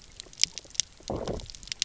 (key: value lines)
label: biophony, low growl
recorder: SoundTrap 300